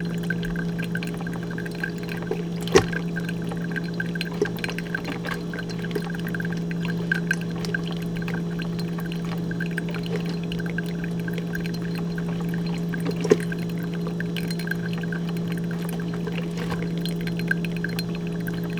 Is this sound inside a container?
yes